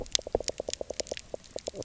{"label": "biophony, knock croak", "recorder": "SoundTrap 300"}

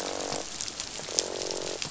{"label": "biophony, croak", "recorder": "SoundTrap 500"}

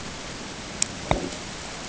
{"label": "ambient", "recorder": "HydroMoth"}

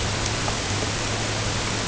{"label": "ambient", "recorder": "HydroMoth"}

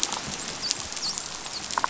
{"label": "biophony, dolphin", "recorder": "SoundTrap 500"}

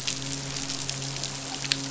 {"label": "biophony, midshipman", "recorder": "SoundTrap 500"}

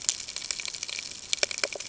{"label": "ambient", "recorder": "HydroMoth"}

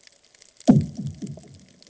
{"label": "anthrophony, bomb", "recorder": "HydroMoth"}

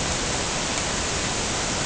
{"label": "ambient", "recorder": "HydroMoth"}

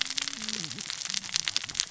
{"label": "biophony, cascading saw", "recorder": "SoundTrap 600 or HydroMoth"}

